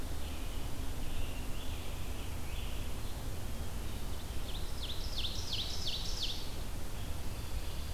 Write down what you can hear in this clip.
Scarlet Tanager, Ovenbird